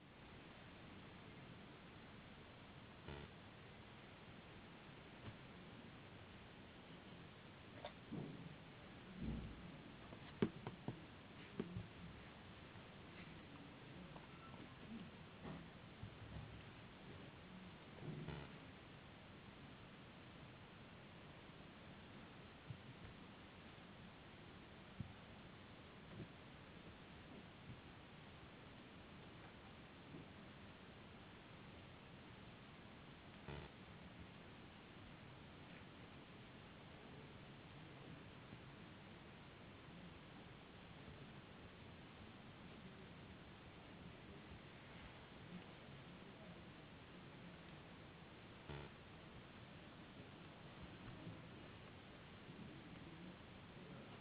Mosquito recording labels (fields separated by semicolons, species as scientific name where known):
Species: no mosquito; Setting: insect culture